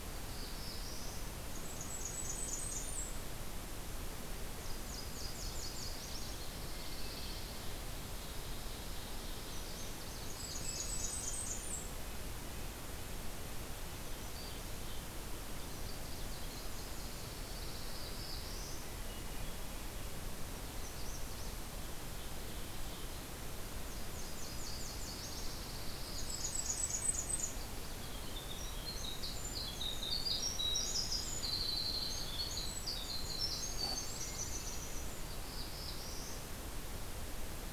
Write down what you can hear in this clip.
Black-throated Blue Warbler, Blackburnian Warbler, Nashville Warbler, Pine Warbler, Ovenbird, Red-breasted Nuthatch, Hermit Thrush, Magnolia Warbler, Winter Wren